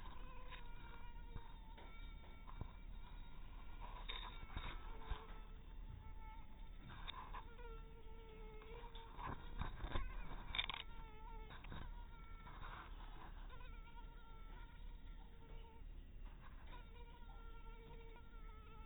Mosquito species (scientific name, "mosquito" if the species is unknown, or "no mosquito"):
mosquito